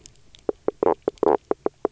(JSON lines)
{"label": "biophony, knock croak", "recorder": "SoundTrap 300"}